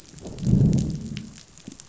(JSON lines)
{"label": "biophony, growl", "recorder": "SoundTrap 500"}